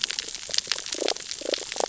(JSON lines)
{"label": "biophony, damselfish", "recorder": "SoundTrap 600 or HydroMoth"}